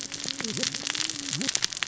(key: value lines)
label: biophony, cascading saw
recorder: SoundTrap 600 or HydroMoth